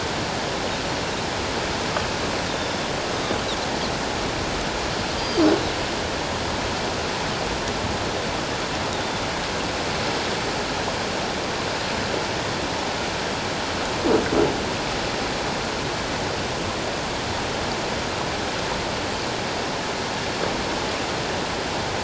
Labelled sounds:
2.5	2.8	Pacific white-sided dolphin, 3.5 to 5.5 kHz
5.2	5.4	Pacific white-sided dolphin, 4.5 to 4.9 kHz

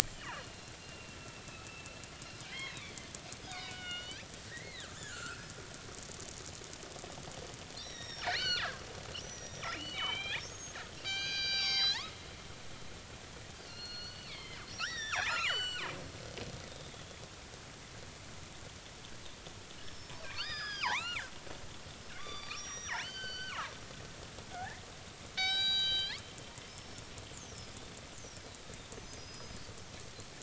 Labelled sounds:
0.1	2.9	killer whale, northern resident, G clan, 1.1 to 5.1 kHz
3.5	5.5	killer whale, northern resident, G clan, 1.2 to 5.9 kHz
7.8	8.7	killer whale, northern resident, G clan, 1.2 to 5.7 kHz
9.2	12.1	killer whale, northern resident, G clan, 0.80 to 6.7 kHz
13.6	15.9	killer whale, northern resident, G clan, 0.80 to 7.6 kHz
16.7	17.2	killer whale, northern resident, G clan, 3.3 to 3.7 kHz
19.8	21.3	killer whale, northern resident, G clan, 0.80 to 7.3 kHz
22.2	24.8	killer whale, northern resident, G clan, 0.80 to 7.0 kHz
25.4	26.2	killer whale, northern resident, G clan, 0.80 to 7.8 kHz
26.7	27.0	killer whale, northern resident, G clan, 5.0 to 5.4 kHz
29.0	29.6	killer whale, northern resident, G clan, 4.9 to 5.2 kHz

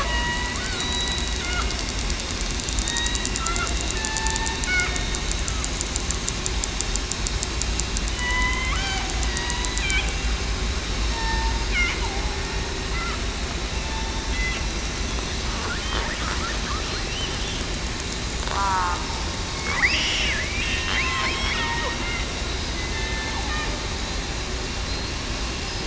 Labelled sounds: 0.0	1.2	killer whale, southern resident, 0.94 to 3.9 kHz
2.8	3.2	killer whale, southern resident, 1.8 to 3.9 kHz
3.9	4.6	killer whale, southern resident, 0.84 to 2.7 kHz
4.9	5.2	killer whale, southern resident, 3.6 to 3.7 kHz
8.1	9.6	killer whale, southern resident, 0.63 to 3.1 kHz
11.1	11.5	killer whale, southern resident, 1.8 to 1.9 kHz
13.8	14.3	killer whale, southern resident, 3.5 to 3.7 kHz
18.5	19.0	killer whale, southern resident, 0.84 to 1.6 kHz
19.8	20.2	killer whale, southern resident, 1.8 to 3.0 kHz
20.6	22.0	killer whale, southern resident, 1.8 to 5.3 kHz
22.7	23.3	killer whale, southern resident, 2.0 to 2.2 kHz

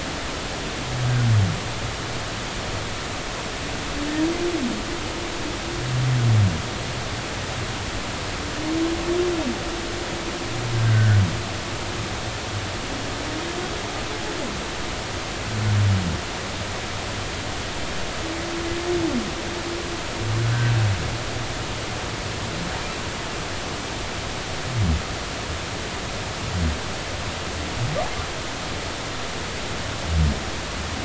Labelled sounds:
10.9	11.2	humpback whale, 1.4 to 2.0 kHz

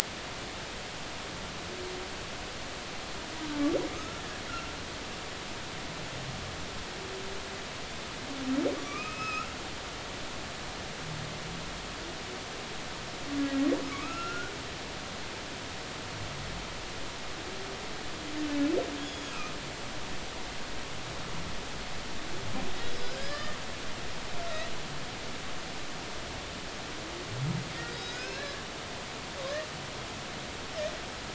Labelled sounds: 3.9	4.2	humpback whale, 1.2 to 1.4 kHz
8.8	9.6	humpback whale, 1.1 to 5.2 kHz
13.8	14.5	humpback whale, 1.1 to 5.5 kHz
19.0	19.5	humpback whale, 2.4 to 6.8 kHz
22.8	23.6	humpback whale, 1.4 to 5.4 kHz
24.4	24.6	humpback whale, 1.2 to 1.4 kHz
27.9	28.6	humpback whale, 1.4 to 5.4 kHz

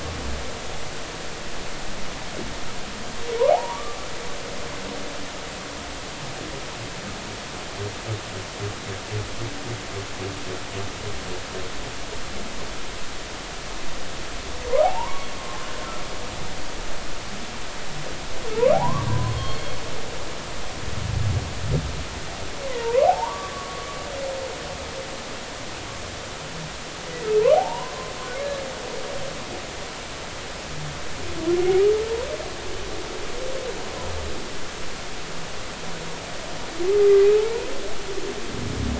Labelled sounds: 3.5	4.0	humpback whale, 0.80 to 1.2 kHz
15.4	16.3	humpback whale, 0.80 to 1.2 kHz
18.7	19.8	humpback whale, 0.80 to 4.4 kHz
22.6	23.9	humpback whale, 0.80 to 2.2 kHz
27.5	27.9	humpback whale, 0.80 to 1.1 kHz
37.4	37.7	humpback whale, 0.83 to 1.1 kHz

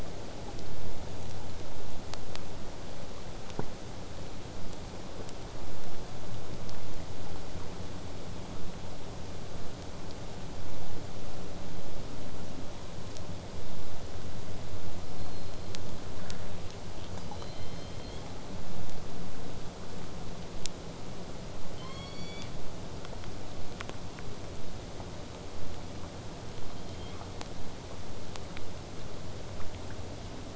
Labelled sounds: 15.1	15.7	killer whale, southern resident, 3.9 to 5.5 kHz
16.1	20.8	killer whale, southern resident, 1.1 to 8.0 kHz
26.6	27.3	killer whale, southern resident, 1.8 to 5.2 kHz

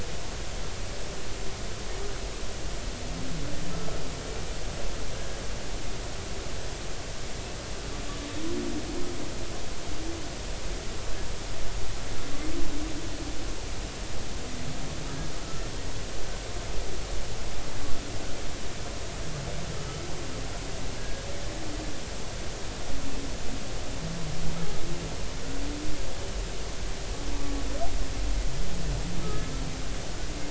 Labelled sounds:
5.1	5.4	humpback whale, 1.5 to 1.7 kHz
19.8	20.0	humpback whale, 2.9 to 3.1 kHz
22.0	22.3	humpback whale, 1.6 to 1.7 kHz
29.2	29.5	humpback whale, 1.2 to 1.3 kHz

